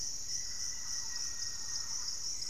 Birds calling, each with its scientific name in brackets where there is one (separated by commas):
Thrush-like Wren (Campylorhynchus turdinus), Hauxwell's Thrush (Turdus hauxwelli), Black-faced Antthrush (Formicarius analis)